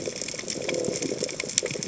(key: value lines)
label: biophony
recorder: HydroMoth